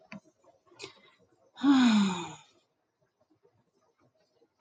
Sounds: Sigh